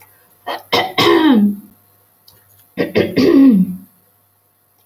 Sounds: Throat clearing